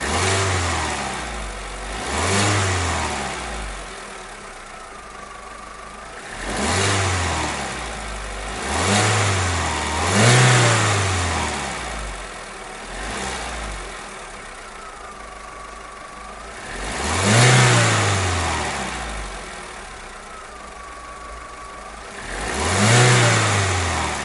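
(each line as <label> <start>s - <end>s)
Car engine starting with intermittent failed ignition attempts, followed by successful revving. 0.0s - 24.2s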